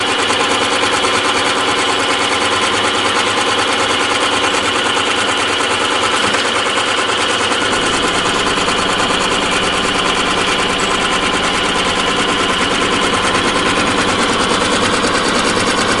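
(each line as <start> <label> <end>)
0.0 The sewing machine runs loudly and repeatedly nearby. 16.0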